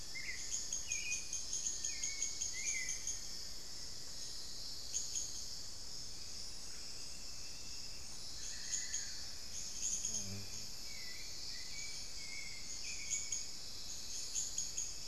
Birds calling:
Little Tinamou (Crypturellus soui)
Amazonian Barred-Woodcreeper (Dendrocolaptes certhia)
Hauxwell's Thrush (Turdus hauxwelli)
unidentified bird

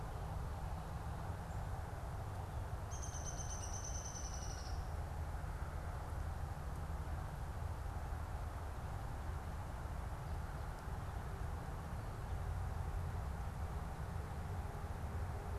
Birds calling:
Downy Woodpecker (Dryobates pubescens)

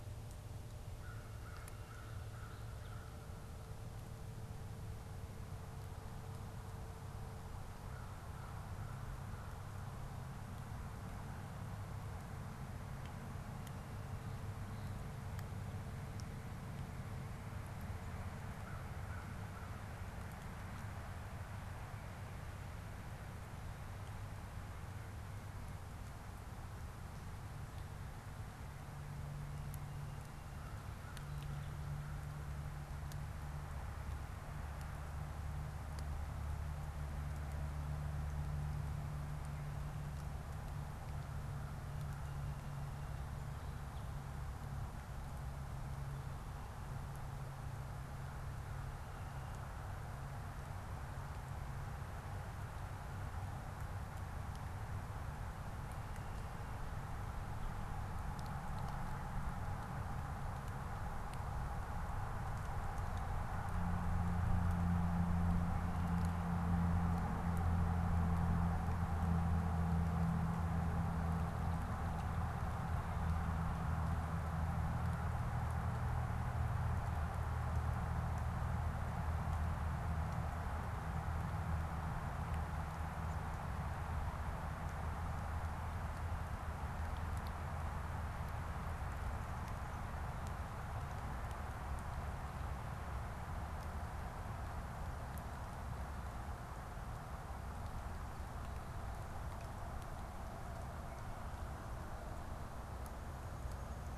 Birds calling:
American Crow (Corvus brachyrhynchos)
Song Sparrow (Melospiza melodia)

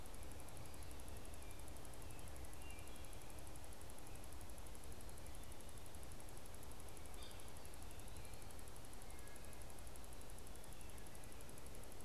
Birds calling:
Wood Thrush (Hylocichla mustelina)
unidentified bird

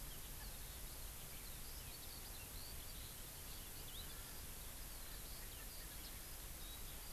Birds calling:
Eurasian Skylark (Alauda arvensis)

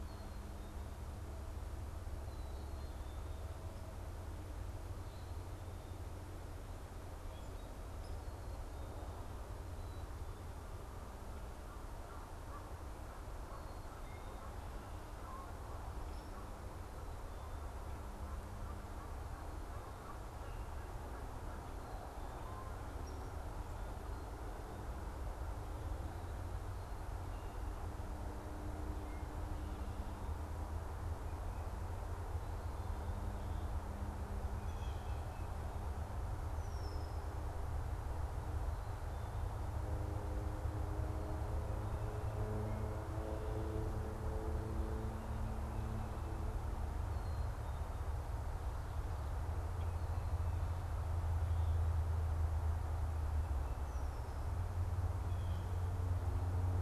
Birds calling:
Black-capped Chickadee (Poecile atricapillus)
Blue Jay (Cyanocitta cristata)
Red-winged Blackbird (Agelaius phoeniceus)
Canada Goose (Branta canadensis)
Hairy Woodpecker (Dryobates villosus)
Common Grackle (Quiscalus quiscula)

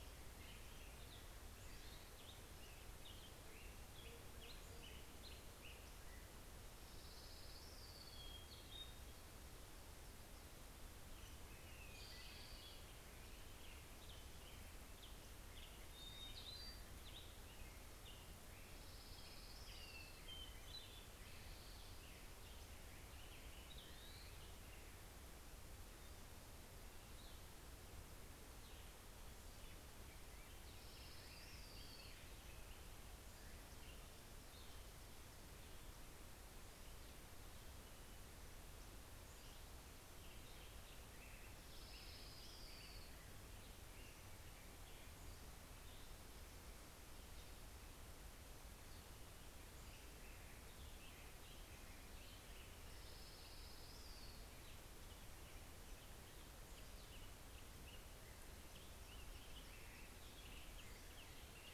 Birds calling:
Orange-crowned Warbler (Leiothlypis celata)
Pacific-slope Flycatcher (Empidonax difficilis)
Hermit Thrush (Catharus guttatus)
Black-headed Grosbeak (Pheucticus melanocephalus)
Spotted Towhee (Pipilo maculatus)

